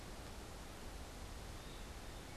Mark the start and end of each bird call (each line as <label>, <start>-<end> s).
Eastern Wood-Pewee (Contopus virens), 1.4-1.8 s